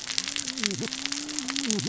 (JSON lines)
{"label": "biophony, cascading saw", "recorder": "SoundTrap 600 or HydroMoth"}